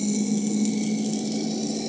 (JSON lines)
{"label": "anthrophony, boat engine", "recorder": "HydroMoth"}